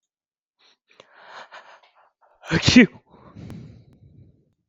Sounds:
Sneeze